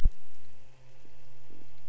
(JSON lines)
{"label": "anthrophony, boat engine", "recorder": "SoundTrap 300"}